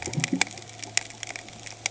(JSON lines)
{"label": "anthrophony, boat engine", "recorder": "HydroMoth"}